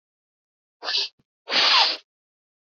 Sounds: Sniff